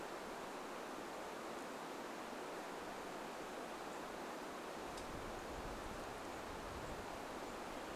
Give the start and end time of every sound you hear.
6s-8s: unidentified bird chip note

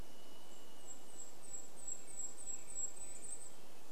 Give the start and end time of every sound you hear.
0s-2s: Varied Thrush song
0s-4s: Golden-crowned Kinglet song
2s-4s: American Robin song

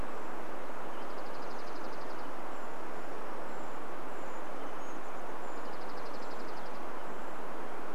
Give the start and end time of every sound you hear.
0s-4s: Dark-eyed Junco song
2s-8s: Brown Creeper call
4s-6s: Chestnut-backed Chickadee call
6s-8s: Dark-eyed Junco song

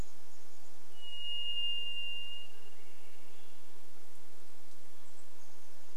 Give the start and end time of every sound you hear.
0s-2s: Chestnut-backed Chickadee call
0s-4s: Varied Thrush song
0s-6s: insect buzz
2s-4s: Swainson's Thrush song
4s-6s: Chestnut-backed Chickadee call

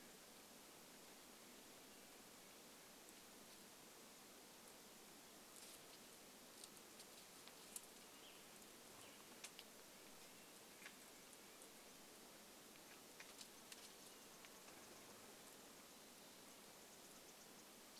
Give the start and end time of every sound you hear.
8s-10s: Western Tanager song
10s-12s: Red-breasted Nuthatch song
12s-18s: unidentified bird chip note
14s-16s: unidentified sound

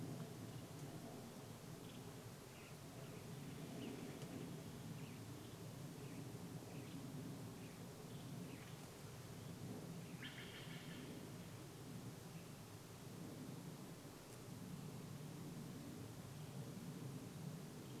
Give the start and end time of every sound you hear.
0s-18s: airplane
2s-10s: Western Tanager song
10s-12s: Steller's Jay call
12s-14s: Western Tanager song

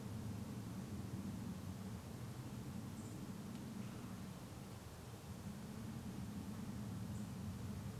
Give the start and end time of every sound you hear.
0s-8s: airplane
2s-4s: unidentified bird chip note
6s-8s: unidentified bird chip note

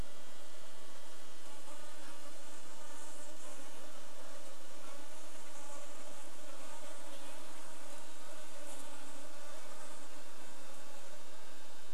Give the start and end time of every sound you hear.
0s-12s: insect buzz
6s-8s: Red-breasted Nuthatch song

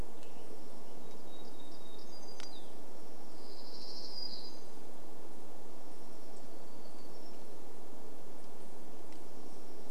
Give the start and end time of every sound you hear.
0s-2s: Western Tanager song
0s-8s: warbler song
6s-10s: unidentified sound

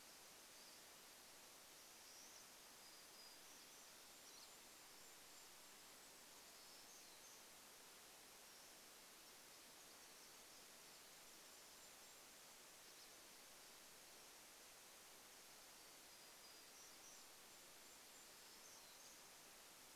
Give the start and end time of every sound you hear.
0s-8s: Pine Siskin call
2s-4s: warbler song
2s-8s: Golden-crowned Kinglet song
6s-8s: warbler song
8s-12s: Pacific Wren song
10s-14s: Golden-crowned Kinglet song
12s-14s: Pine Siskin call
14s-20s: warbler song
16s-20s: Golden-crowned Kinglet song

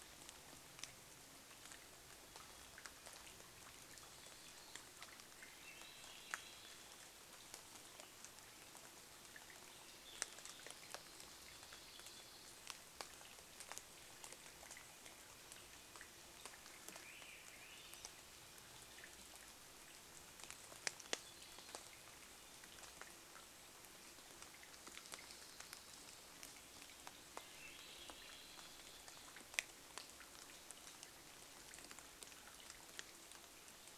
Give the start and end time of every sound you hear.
0s-34s: rain
2s-6s: Hermit Thrush song
4s-6s: unidentified sound
4s-8s: Swainson's Thrush song
10s-14s: unidentified sound
16s-18s: Swainson's Thrush song
20s-22s: unidentified sound
22s-24s: Hermit Thrush song
24s-26s: unidentified sound
26s-30s: Swainson's Thrush song

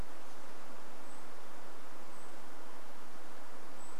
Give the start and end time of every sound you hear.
0s-4s: Golden-crowned Kinglet call

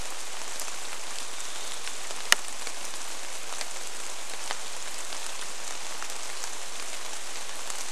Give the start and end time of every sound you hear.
0s-2s: Varied Thrush song
0s-8s: rain

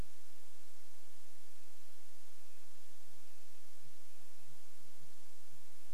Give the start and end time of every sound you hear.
0s-6s: Red-breasted Nuthatch song
0s-6s: Sooty Grouse song

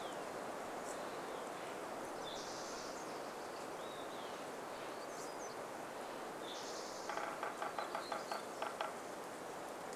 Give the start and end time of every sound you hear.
0s-2s: Steller's Jay call
0s-6s: Olive-sided Flycatcher song
2s-4s: Spotted Towhee song
4s-6s: Steller's Jay call
4s-10s: warbler song
6s-8s: Spotted Towhee song
6s-10s: woodpecker drumming

